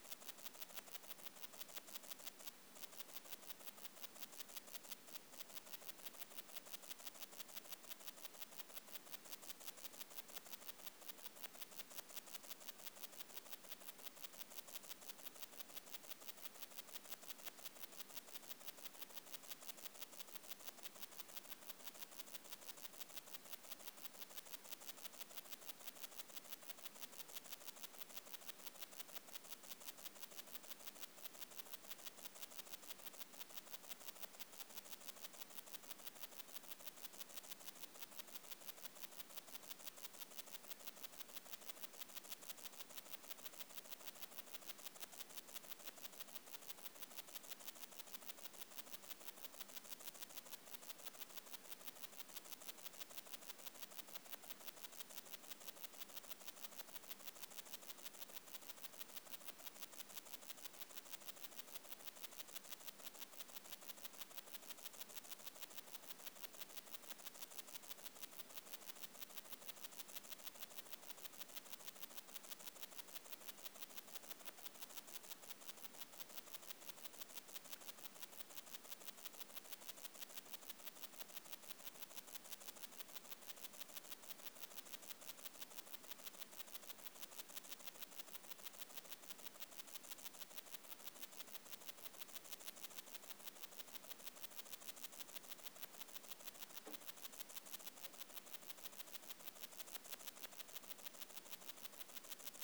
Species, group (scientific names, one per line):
Tessellana tessellata
Orthoptera